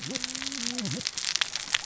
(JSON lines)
{"label": "biophony, cascading saw", "recorder": "SoundTrap 600 or HydroMoth"}